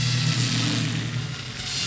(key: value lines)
label: anthrophony, boat engine
recorder: SoundTrap 500